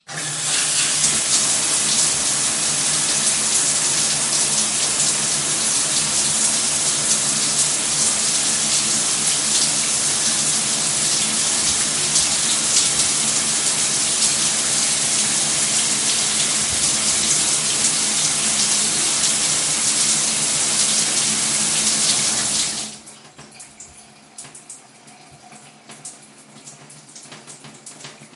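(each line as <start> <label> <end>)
0.0 Water splashing steadily, resembling a shower. 23.1
23.1 Water drips faintly and intermittently in a quiet indoor environment. 28.4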